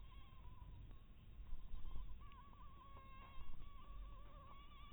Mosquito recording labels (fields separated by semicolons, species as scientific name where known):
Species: Anopheles maculatus; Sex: female; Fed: blood-fed; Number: one; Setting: cup